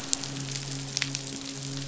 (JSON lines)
{"label": "biophony, midshipman", "recorder": "SoundTrap 500"}